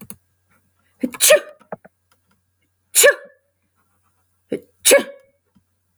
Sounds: Sneeze